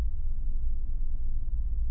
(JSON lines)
{"label": "anthrophony, boat engine", "recorder": "SoundTrap 300"}